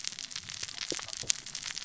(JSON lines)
{"label": "biophony, cascading saw", "recorder": "SoundTrap 600 or HydroMoth"}